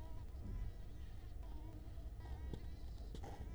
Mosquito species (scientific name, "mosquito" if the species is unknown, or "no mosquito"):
Culex quinquefasciatus